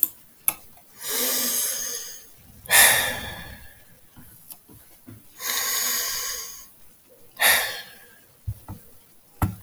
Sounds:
Sigh